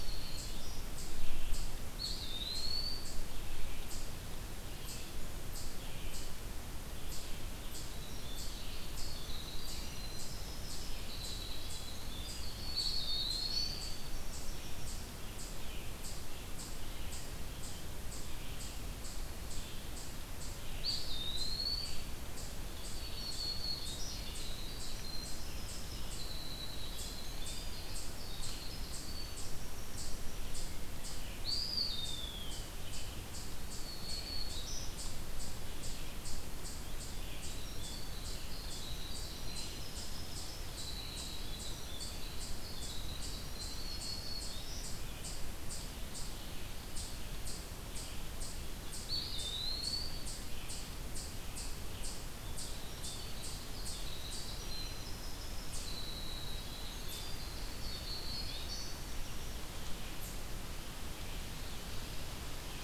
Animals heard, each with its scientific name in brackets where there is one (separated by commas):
Red-eyed Vireo (Vireo olivaceus), Winter Wren (Troglodytes hiemalis), Black-throated Green Warbler (Setophaga virens), Eastern Chipmunk (Tamias striatus), Eastern Wood-Pewee (Contopus virens)